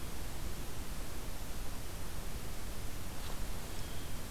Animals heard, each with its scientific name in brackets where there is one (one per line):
Blue Jay (Cyanocitta cristata)